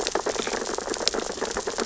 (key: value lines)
label: biophony, sea urchins (Echinidae)
recorder: SoundTrap 600 or HydroMoth